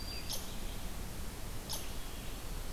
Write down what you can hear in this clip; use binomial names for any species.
Setophaga virens, Vireo olivaceus, unknown mammal